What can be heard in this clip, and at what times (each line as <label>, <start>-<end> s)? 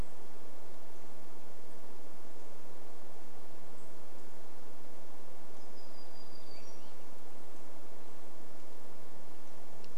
unidentified bird chip note, 2-4 s
warbler song, 4-8 s
Swainson's Thrush song, 6-8 s